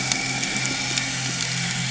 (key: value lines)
label: anthrophony, boat engine
recorder: HydroMoth